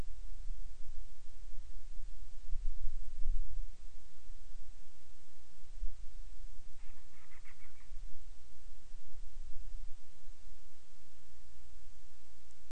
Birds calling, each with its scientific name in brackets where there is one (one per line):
Band-rumped Storm-Petrel (Hydrobates castro)